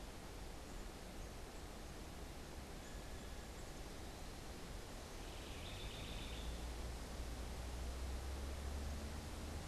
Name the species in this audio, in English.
House Wren